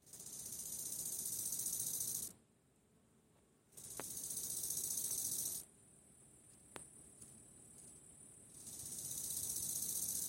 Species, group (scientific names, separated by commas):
Chorthippus biguttulus, Orthoptera